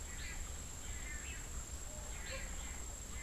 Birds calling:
Long-tailed Manakin (Chiroxiphia linearis)

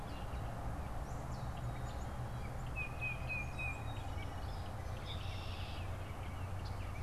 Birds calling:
Red-winged Blackbird (Agelaius phoeniceus)
Tufted Titmouse (Baeolophus bicolor)
Gray Catbird (Dumetella carolinensis)

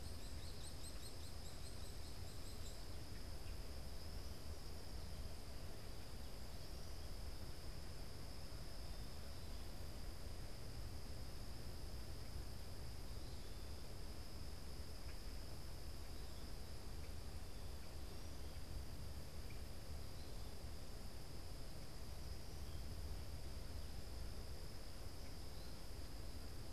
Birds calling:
Hairy Woodpecker (Dryobates villosus)
American Goldfinch (Spinus tristis)
Common Grackle (Quiscalus quiscula)

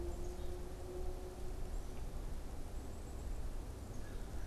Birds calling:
American Crow (Corvus brachyrhynchos)
Black-capped Chickadee (Poecile atricapillus)

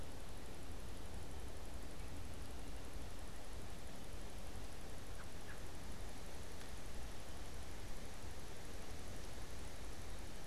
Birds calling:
American Robin (Turdus migratorius)

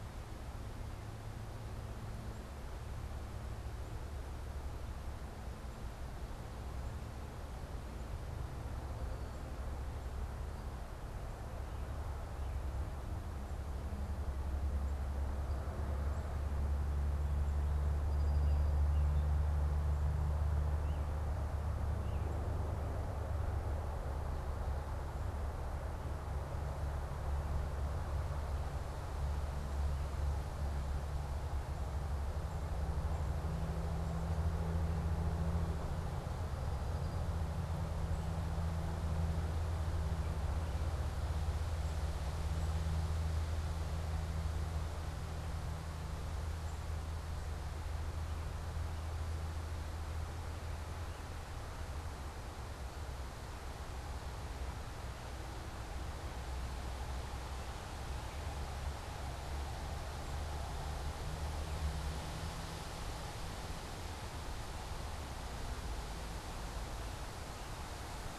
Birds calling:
unidentified bird
American Robin (Turdus migratorius)
Black-capped Chickadee (Poecile atricapillus)
Song Sparrow (Melospiza melodia)

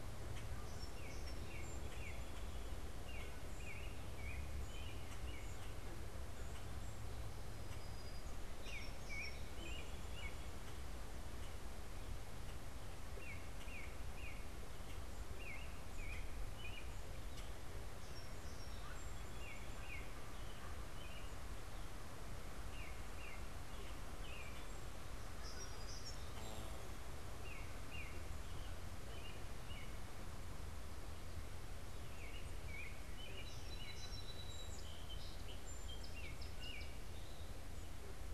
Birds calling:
Song Sparrow (Melospiza melodia)
Common Grackle (Quiscalus quiscula)
American Robin (Turdus migratorius)

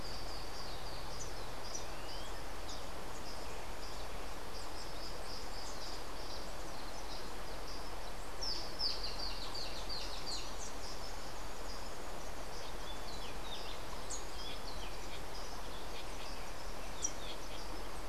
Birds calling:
Rufous-breasted Wren (Pheugopedius rutilus)
Social Flycatcher (Myiozetetes similis)

